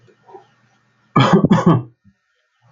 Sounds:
Laughter